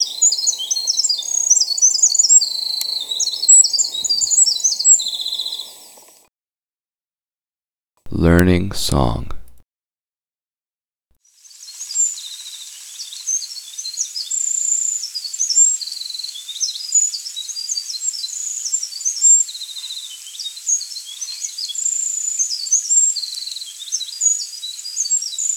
How many words does the man speak?
two